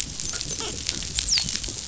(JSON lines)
{"label": "biophony, dolphin", "recorder": "SoundTrap 500"}
{"label": "biophony", "recorder": "SoundTrap 500"}